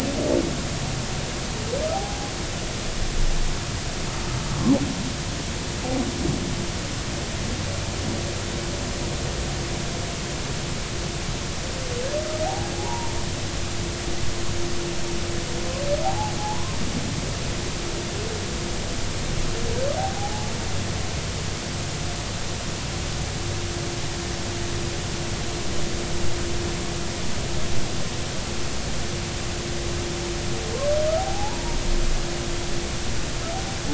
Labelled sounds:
1.9	2.3	humpback whale, 0.80 to 0.90 kHz
12.5	13.1	humpback whale, 0.80 to 1.1 kHz
16.0	16.7	humpback whale, 0.80 to 1.1 kHz
20.0	20.5	humpback whale, 0.80 to 0.93 kHz
31.2	31.8	humpback whale, 0.80 to 0.99 kHz

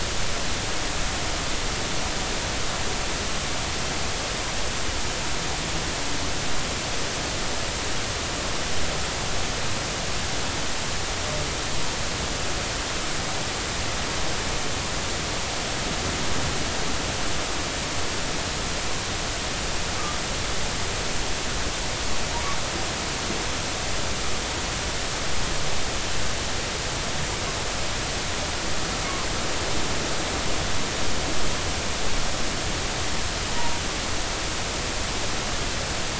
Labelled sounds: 33.5	33.8	humpback whale, 0.86 to 0.99 kHz

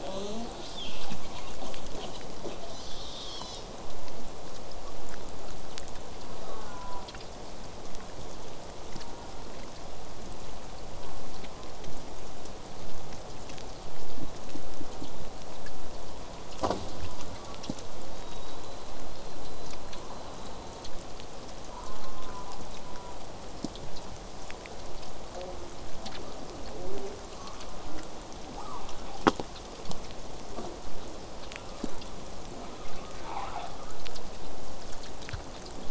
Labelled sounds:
0.0	3.7	killer whale, southern resident, J pod, call S10, 0.11 to 8.0 kHz
6.3	7.2	killer whale, southern resident, J pod, call S04, 0.19 to 1.8 kHz
8.9	9.5	killer whale, southern resident, J pod, call S04, 0.17 to 1.5 kHz
11.0	11.8	killer whale, southern resident, J pod, 0.18 to 1.3 kHz
18.2	20.9	killer whale, southern resident, J pod, whistle, 3.5 to 4.4 kHz
21.7	23.2	killer whale, southern resident, J pod, call S04, 0.70 to 1.6 kHz
25.3	25.7	killer whale, southern resident, J pod, call S04, 0.15 to 1.1 kHz
26.7	27.2	killer whale, southern resident, J pod, call S04, 0.27 to 0.89 kHz
27.4	28.1	killer whale, southern resident, J pod, 0.19 to 1.4 kHz
28.6	28.8	killer whale, southern resident, J pod, 0.58 to 1.4 kHz
30.5	30.7	killer whale, southern resident, J pod, 0.19 to 1.2 kHz
31.6	32.0	killer whale, southern resident, J pod, call S04, 0.35 to 1.4 kHz
32.5	33.9	killer whale, southern resident, J pod, 0.19 to 5.5 kHz

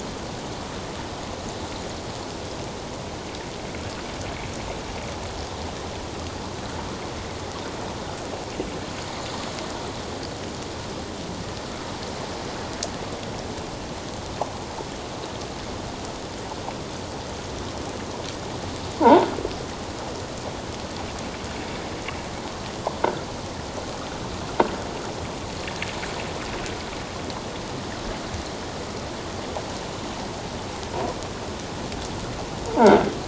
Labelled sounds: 19.0	19.3	croaking sound likely from a nearby submerged object, 0.78 to 1.2 kHz

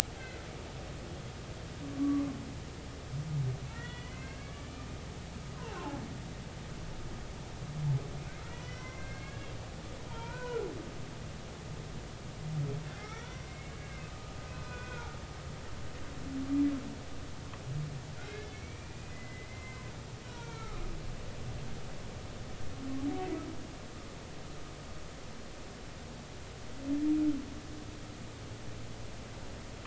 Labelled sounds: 2.0	2.3	humpback whale, 1.0 to 1.2 kHz
3.7	4.7	humpback whale, 1.3 to 3.5 kHz
5.5	6.0	humpback whale, 0.80 to 2.9 kHz
8.5	9.5	humpback whale, 0.99 to 5.7 kHz
10.1	10.7	humpback whale, 0.86 to 2.6 kHz
13.0	14.0	humpback whale, 1.2 to 2.4 kHz
14.5	15.2	humpback whale, 1.3 to 2.6 kHz
18.2	19.8	humpback whale, 0.99 to 2.5 kHz
20.2	20.9	humpback whale, 0.90 to 2.4 kHz

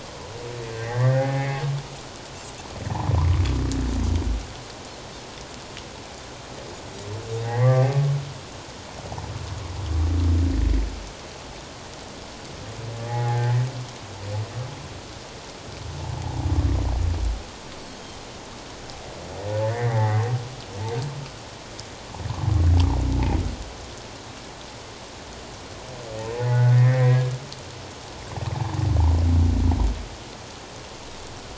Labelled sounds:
0.8	1.6	humpback whale, 0.78 to 2.2 kHz
7.4	7.9	humpback whale, 1.1 to 2.2 kHz
13.1	13.6	humpback whale, 0.78 to 2.0 kHz
17.9	18.2	humpback whale, 3.1 to 3.3 kHz
19.6	20.2	humpback whale, 1.5 to 2.2 kHz
26.3	27.3	humpback whale, 0.81 to 2.4 kHz

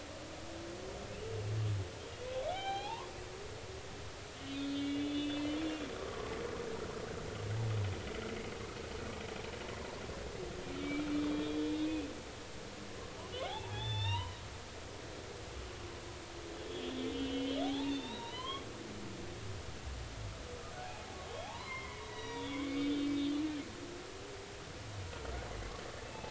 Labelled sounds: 2.0	3.1	humpback whale, 0.80 to 4.2 kHz
4.5	5.6	humpback whale, 2.2 to 3.8 kHz
5.9	6.3	humpback whale, 0.99 to 1.3 kHz
10.8	12.1	humpback whale, 2.2 to 3.9 kHz
13.4	14.4	humpback whale, 0.80 to 5.7 kHz
16.5	18.7	humpback whale, 0.80 to 4.6 kHz
20.8	23.7	humpback whale, 0.80 to 5.9 kHz
26.1	26.2	humpback whale, 2.6 to 2.7 kHz

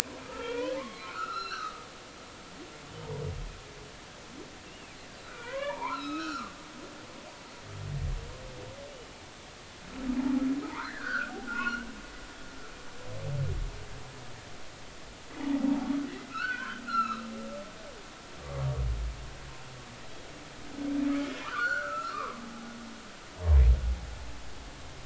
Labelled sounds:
0.3	1.9	humpback whale, 0.86 to 4.2 kHz
4.7	6.5	humpback whale, 0.80 to 5.8 kHz
10.7	11.9	humpback whale, 0.80 to 3.0 kHz
15.4	15.8	humpback whale, 0.80 to 0.99 kHz
16.3	17.3	humpback whale, 1.1 to 4.6 kHz
21.0	22.4	humpback whale, 0.86 to 4.5 kHz

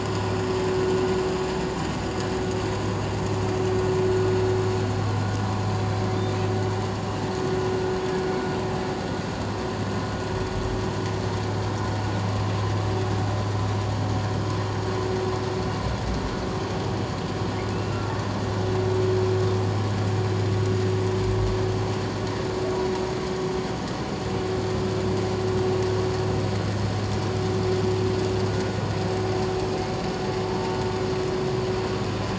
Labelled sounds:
3.4	3.7	vessel noise, 6.2 to 6.3 kHz
17.7	18.0	humpback whale, 2.5 to 2.8 kHz
30.4	30.8	humpback whale, 0.88 to 0.97 kHz

